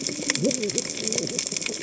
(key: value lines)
label: biophony, cascading saw
recorder: HydroMoth